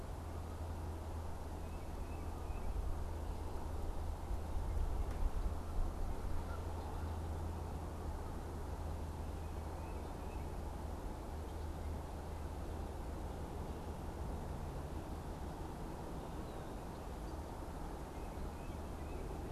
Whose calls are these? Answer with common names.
Tufted Titmouse, Canada Goose